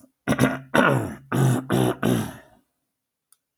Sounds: Throat clearing